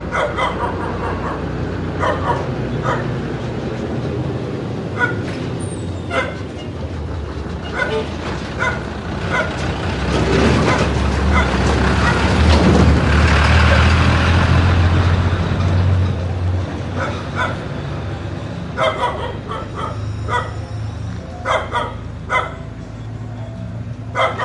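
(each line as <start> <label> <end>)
0.0 The ambiance of a residential area includes the distant hum of city life, occasional dog barks, and subtle environmental sounds blending into a natural urban atmosphere. 10.1
10.1 Loud vehicle noises including crackling, engine roars, and the constant hum of traffic. 16.2
16.1 The ambiance of a residential area includes the distant hum of city life, occasional dog barks, and subtle environmental sounds blending into a natural urban atmosphere. 24.4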